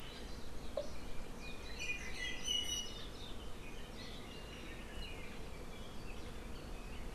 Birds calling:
Apapane (Himatione sanguinea)

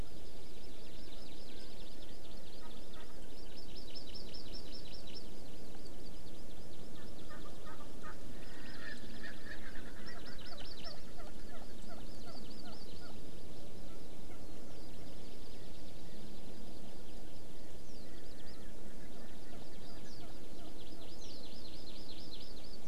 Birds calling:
Erckel's Francolin (Pternistis erckelii), Warbling White-eye (Zosterops japonicus), Hawaii Amakihi (Chlorodrepanis virens)

